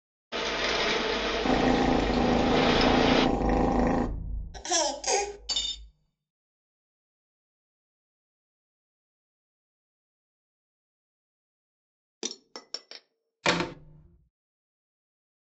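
At 0.32 seconds, there is rain on a surface. Over it, at 1.42 seconds, a cat purrs. After that, at 4.53 seconds, laughter is audible. Next, at 5.48 seconds, you can hear cutlery. Afterwards, at 12.21 seconds, there is the quiet sound of glass. Finally, at 13.43 seconds, a wooden cupboard closes.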